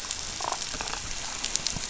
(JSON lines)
{"label": "biophony, damselfish", "recorder": "SoundTrap 500"}